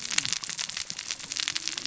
{"label": "biophony, cascading saw", "recorder": "SoundTrap 600 or HydroMoth"}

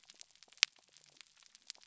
{"label": "biophony", "recorder": "SoundTrap 300"}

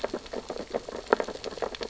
{"label": "biophony, sea urchins (Echinidae)", "recorder": "SoundTrap 600 or HydroMoth"}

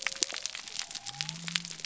{"label": "biophony", "recorder": "SoundTrap 300"}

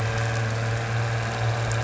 {"label": "anthrophony, boat engine", "recorder": "SoundTrap 300"}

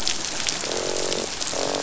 {"label": "biophony, croak", "recorder": "SoundTrap 500"}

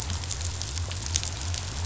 {"label": "biophony", "recorder": "SoundTrap 500"}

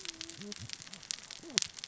{"label": "biophony, cascading saw", "recorder": "SoundTrap 600 or HydroMoth"}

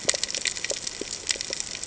{"label": "ambient", "recorder": "HydroMoth"}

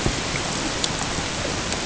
{"label": "ambient", "recorder": "HydroMoth"}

